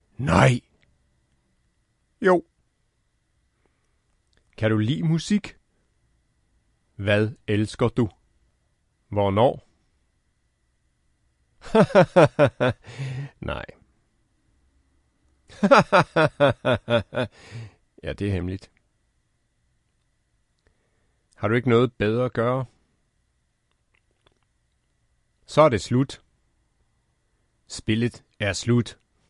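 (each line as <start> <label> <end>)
0.2 A man speaking loudly in a Slavic language. 0.7
2.2 A man speaking loudly in a Slavic language. 2.5
4.5 A man speaking loudly in a Slavic language. 5.5
7.0 A man speaking loudly in a Slavic language. 8.1
9.1 A man speaking loudly in a Slavic language. 9.7
11.7 A man is laughing. 12.8
12.8 A man speaking loudly in a Slavic language. 13.8
15.5 A man is laughing. 17.3
17.5 A man speaking loudly in a Slavic language. 18.7
21.4 A man speaking loudly in a Slavic language. 22.7
25.4 A man speaking loudly in a Slavic language. 26.3
27.7 A man speaking loudly in a Slavic language. 29.0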